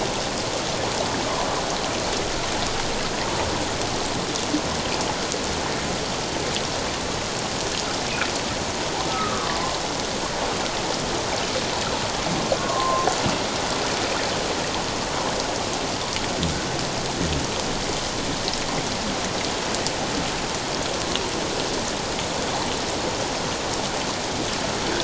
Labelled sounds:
9.1	9.5	humpback whale, 1.0 to 1.3 kHz
12.6	13.1	humpback whale, 0.94 to 1.2 kHz

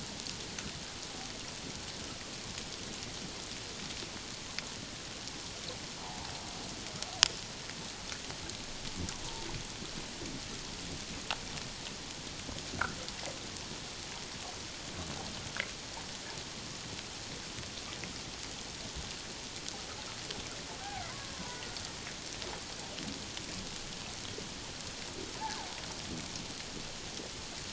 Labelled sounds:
6.0	6.3	killer whale, Bigg's (transient), 0.78 to 1.0 kHz
20.8	21.6	killer whale, Bigg's (transient), 0.78 to 1.1 kHz

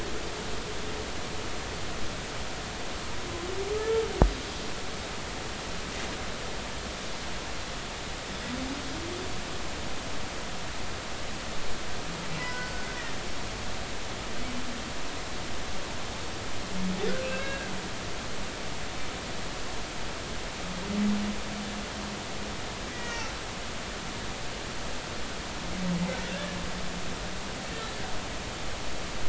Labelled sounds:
3.7	4.0	humpback whale, 1.2 to 1.4 kHz
12.4	12.9	humpback whale, 0.96 to 2.0 kHz
17.2	17.7	humpback whale, 1.5 to 2.8 kHz
22.9	23.3	humpback whale, 1.8 to 2.9 kHz

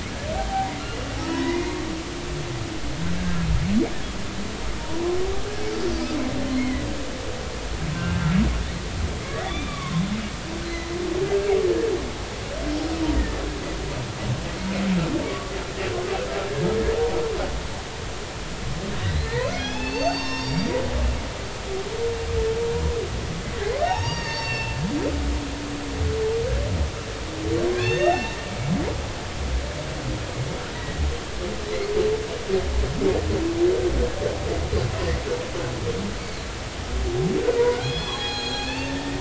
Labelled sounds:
0.4	1.8	humpback whale, 0.80 to 2.2 kHz
6.6	6.9	humpback whale, 1.9 to 2.3 kHz
7.9	8.3	humpback whale, 1.5 to 1.6 kHz
9.4	10.0	humpback whale, 0.93 to 3.6 kHz
10.6	11.0	humpback whale, 1.9 to 4.2 kHz
11.2	11.5	humpback whale, 1.5 to 1.7 kHz
15.2	15.5	humpback whale, 1.1 to 1.2 kHz
19.0	20.8	humpback whale, 0.86 to 6.4 kHz
23.5	24.8	humpback whale, 0.80 to 6.7 kHz
25.4	25.7	humpback whale, 1.7 to 1.9 kHz
27.8	28.4	humpback whale, 1.6 to 6.5 kHz
30.7	31.0	humpback whale, 1.8 to 2.0 kHz
37.6	39.1	humpback whale, 0.80 to 6.7 kHz

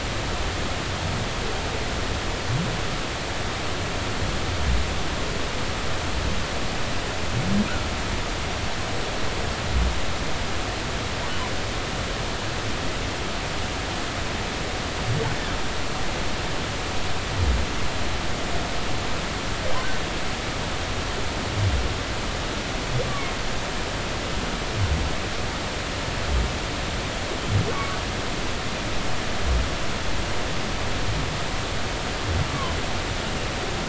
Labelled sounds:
23.1	23.3	humpback whale, 1.1 to 1.2 kHz
27.7	28.0	humpback whale, 1.1 to 1.2 kHz
32.5	32.8	humpback whale, 0.99 to 1.2 kHz

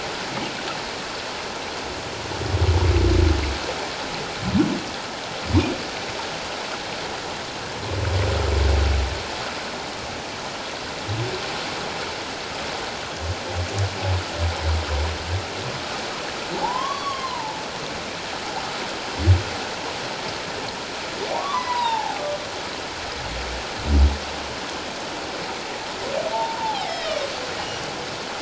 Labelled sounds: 16.5	17.6	humpback whale, 0.78 to 3.4 kHz
21.3	22.2	humpback whale, 0.78 to 1.2 kHz
26.3	27.2	humpback whale, 0.78 to 3.9 kHz

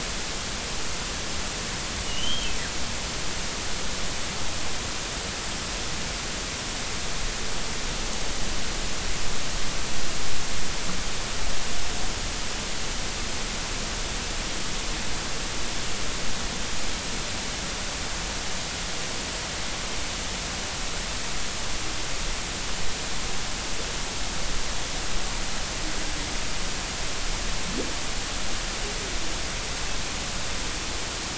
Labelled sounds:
2.1	2.5	humpback whale, 2.8 to 3.3 kHz

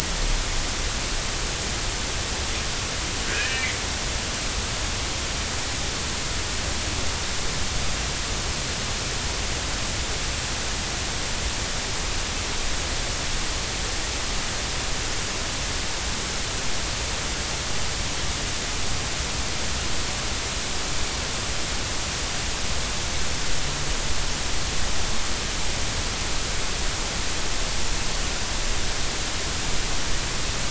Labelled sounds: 3.2	3.8	killer whale, northern resident, G clan, call N24ii, 1.4 to 2.7 kHz

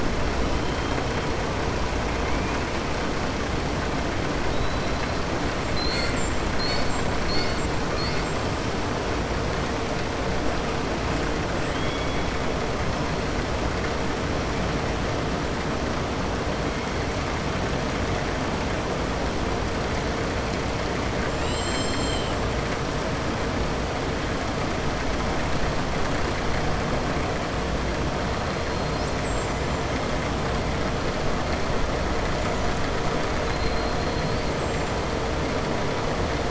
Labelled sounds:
11.6	12.2	killer whale, southern resident, 2.1 to 3.4 kHz

